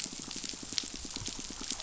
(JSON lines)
{"label": "biophony, pulse", "recorder": "SoundTrap 500"}